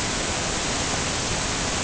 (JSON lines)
{"label": "ambient", "recorder": "HydroMoth"}